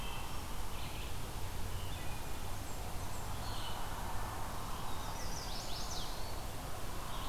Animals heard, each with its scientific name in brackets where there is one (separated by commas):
Red-eyed Vireo (Vireo olivaceus), Blackburnian Warbler (Setophaga fusca), Chestnut-sided Warbler (Setophaga pensylvanica), Wood Thrush (Hylocichla mustelina)